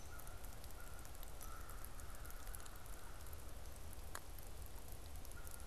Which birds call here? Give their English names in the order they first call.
Hairy Woodpecker, American Crow